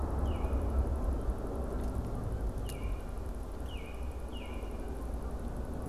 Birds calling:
American Robin (Turdus migratorius), Canada Goose (Branta canadensis)

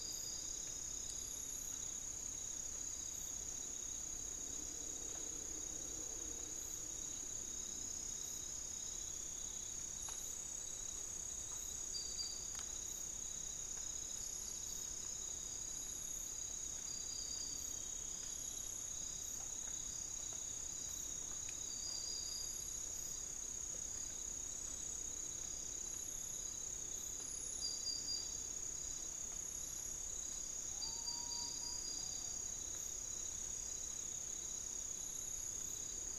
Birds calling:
Common Potoo (Nyctibius griseus)

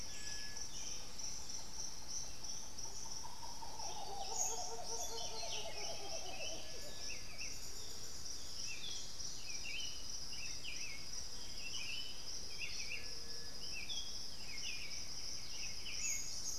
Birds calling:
Black-billed Thrush (Turdus ignobilis), White-winged Becard (Pachyramphus polychopterus), Buff-throated Saltator (Saltator maximus)

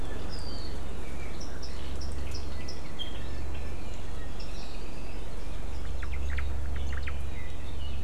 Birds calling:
Apapane (Himatione sanguinea), Iiwi (Drepanis coccinea), Omao (Myadestes obscurus)

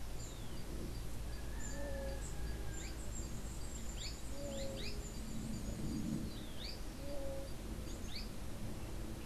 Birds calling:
Azara's Spinetail (Synallaxis azarae), unidentified bird, Scrub Tanager (Stilpnia vitriolina)

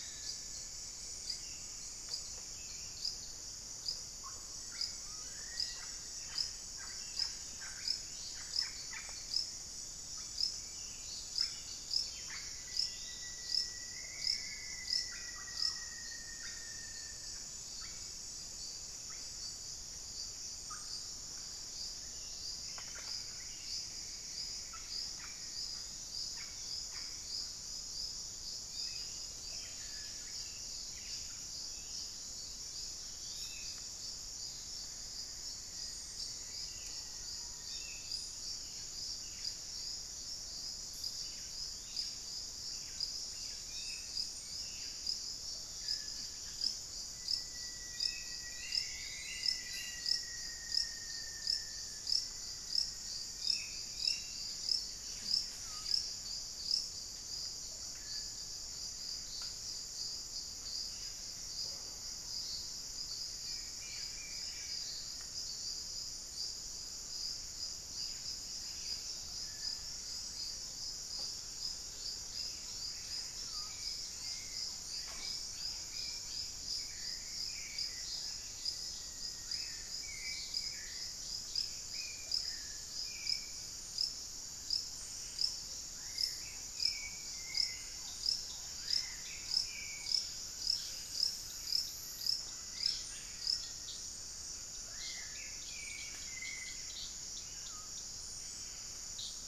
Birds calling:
Buff-breasted Wren (Cantorchilus leucotis), Russet-backed Oropendola (Psarocolius angustifrons), Hauxwell's Thrush (Turdus hauxwelli), Rufous-fronted Antthrush (Formicarius rufifrons), Black-faced Antthrush (Formicarius analis), Black-tailed Trogon (Trogon melanurus), Yellow-rumped Cacique (Cacicus cela), unidentified bird, Screaming Piha (Lipaugus vociferans), Black-faced Cotinga (Conioptilon mcilhennyi)

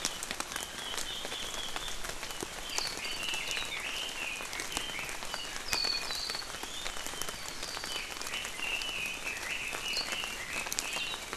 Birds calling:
Red-billed Leiothrix (Leiothrix lutea), Warbling White-eye (Zosterops japonicus)

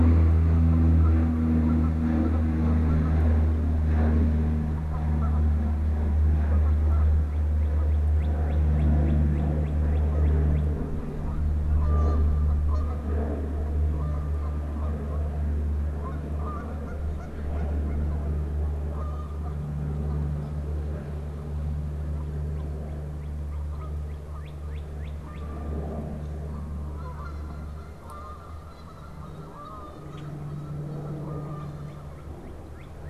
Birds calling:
Northern Cardinal (Cardinalis cardinalis), Canada Goose (Branta canadensis), Common Grackle (Quiscalus quiscula)

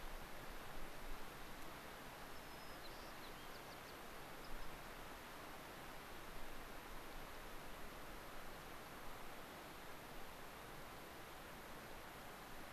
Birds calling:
unidentified bird, White-crowned Sparrow (Zonotrichia leucophrys)

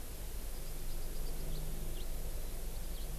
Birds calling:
House Finch (Haemorhous mexicanus), Warbling White-eye (Zosterops japonicus)

